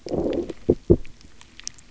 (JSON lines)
{"label": "biophony, low growl", "recorder": "SoundTrap 300"}